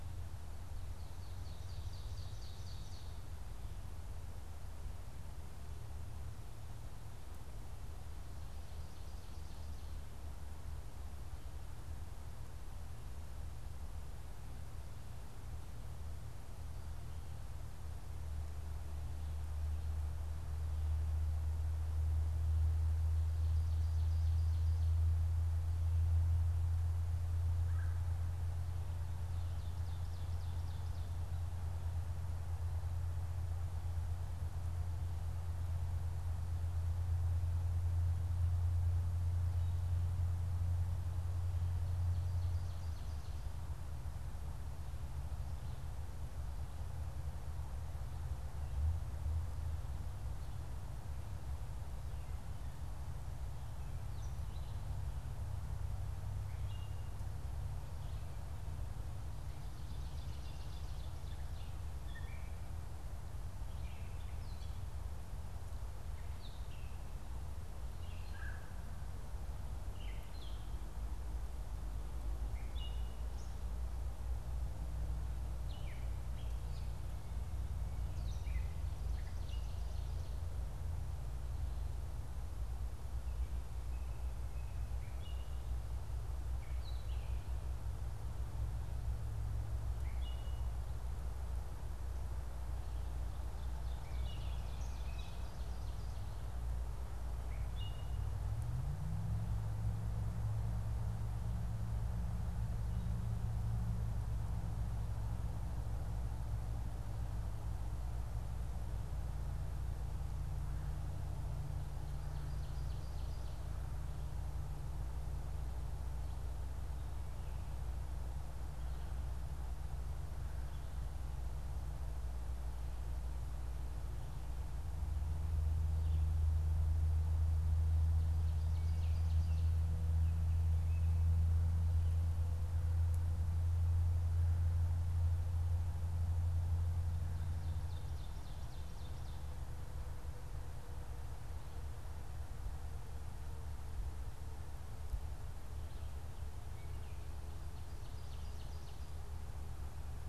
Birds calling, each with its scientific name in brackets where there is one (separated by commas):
Red-bellied Woodpecker (Melanerpes carolinus), Gray Catbird (Dumetella carolinensis), Ovenbird (Seiurus aurocapilla)